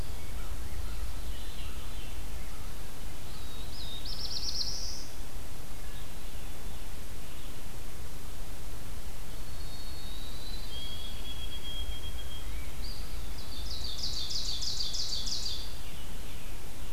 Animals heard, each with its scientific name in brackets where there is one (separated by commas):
Eastern Wood-Pewee (Contopus virens), Ovenbird (Seiurus aurocapilla), Black-throated Blue Warbler (Setophaga caerulescens), Pine Warbler (Setophaga pinus), Rose-breasted Grosbeak (Pheucticus ludovicianus), Veery (Catharus fuscescens), White-throated Sparrow (Zonotrichia albicollis)